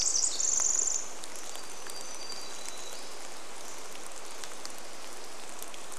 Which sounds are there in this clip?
Pacific Wren song, Hermit Warbler song, rain